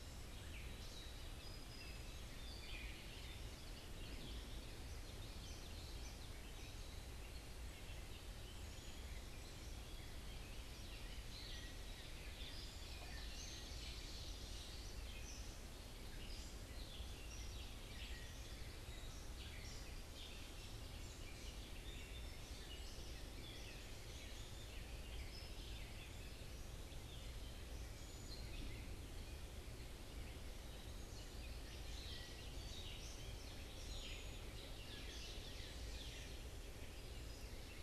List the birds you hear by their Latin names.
Dumetella carolinensis, Geothlypis trichas, Seiurus aurocapilla